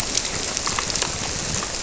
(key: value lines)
label: biophony
recorder: SoundTrap 300